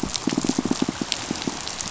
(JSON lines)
{"label": "biophony, pulse", "recorder": "SoundTrap 500"}